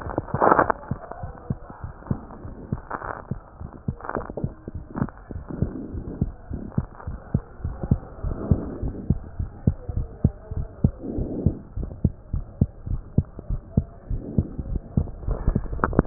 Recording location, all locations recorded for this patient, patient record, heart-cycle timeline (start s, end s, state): pulmonary valve (PV)
aortic valve (AV)+pulmonary valve (PV)+tricuspid valve (TV)+mitral valve (MV)
#Age: Child
#Sex: Female
#Height: 136.0 cm
#Weight: 18.5 kg
#Pregnancy status: False
#Murmur: Absent
#Murmur locations: nan
#Most audible location: nan
#Systolic murmur timing: nan
#Systolic murmur shape: nan
#Systolic murmur grading: nan
#Systolic murmur pitch: nan
#Systolic murmur quality: nan
#Diastolic murmur timing: nan
#Diastolic murmur shape: nan
#Diastolic murmur grading: nan
#Diastolic murmur pitch: nan
#Diastolic murmur quality: nan
#Outcome: Abnormal
#Campaign: 2015 screening campaign
0.00	1.00	unannotated
1.00	1.21	diastole
1.21	1.34	S1
1.34	1.50	systole
1.50	1.60	S2
1.60	1.84	diastole
1.84	1.94	S1
1.94	2.10	systole
2.10	2.24	S2
2.24	2.46	diastole
2.46	2.52	S1
2.52	2.68	systole
2.68	2.82	S2
2.82	3.08	diastole
3.08	3.14	S1
3.14	3.30	systole
3.30	3.38	S2
3.38	3.62	diastole
3.62	3.70	S1
3.70	3.84	systole
3.84	3.96	S2
3.96	4.16	diastole
4.16	4.26	S1
4.26	4.42	systole
4.42	4.52	S2
4.52	4.76	diastole
4.76	4.82	S1
4.82	4.96	systole
4.96	5.10	S2
5.10	5.32	diastole
5.32	5.42	S1
5.42	5.60	systole
5.60	5.74	S2
5.74	5.94	diastole
5.94	6.06	S1
6.06	6.20	systole
6.20	6.34	S2
6.34	6.49	diastole
6.49	6.62	S1
6.62	6.74	systole
6.74	6.88	S2
6.88	7.08	diastole
7.08	7.20	S1
7.20	7.30	systole
7.30	7.42	S2
7.42	7.64	diastole
7.64	7.76	S1
7.76	7.88	systole
7.88	8.02	S2
8.02	8.24	diastole
8.24	8.38	S1
8.38	8.50	systole
8.50	8.64	S2
8.64	8.84	diastole
8.84	8.96	S1
8.96	9.08	systole
9.08	9.22	S2
9.22	9.38	diastole
9.38	9.52	S1
9.52	9.66	systole
9.66	9.78	S2
9.78	9.96	diastole
9.96	10.08	S1
10.08	10.20	systole
10.20	10.32	S2
10.32	10.52	diastole
10.52	10.66	S1
10.66	10.80	systole
10.80	10.96	S2
10.96	11.14	diastole
11.14	11.30	S1
11.30	11.44	systole
11.44	11.58	S2
11.58	11.78	diastole
11.78	11.90	S1
11.90	12.00	systole
12.00	12.12	S2
12.12	12.32	diastole
12.32	12.44	S1
12.44	12.58	systole
12.58	12.70	S2
12.70	12.88	diastole
12.88	13.04	S1
13.04	13.14	systole
13.14	13.26	S2
13.26	13.50	diastole
13.50	13.62	S1
13.62	13.76	systole
13.76	13.88	S2
13.88	14.10	diastole
14.10	14.24	S1
14.24	14.34	systole
14.34	14.48	S2
14.48	14.66	diastole
14.66	14.82	S1
14.82	14.96	systole
14.96	15.08	S2
15.08	16.06	unannotated